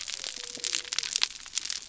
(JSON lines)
{"label": "biophony", "recorder": "SoundTrap 300"}